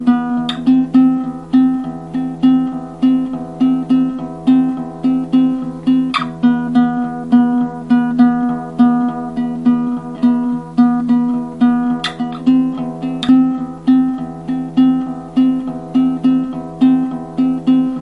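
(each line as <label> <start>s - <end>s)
A guitar is playing. 0.0s - 18.0s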